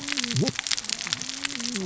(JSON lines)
{"label": "biophony, cascading saw", "recorder": "SoundTrap 600 or HydroMoth"}